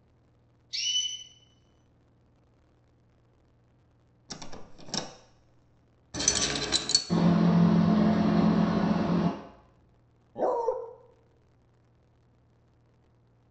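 At 0.7 seconds, there is chirping. Then at 4.28 seconds, the sound of a door can be heard. After that, at 6.13 seconds, keys jangle. Next, at 7.09 seconds, the sound of a boat is audible. Finally, at 10.34 seconds, a dog barks.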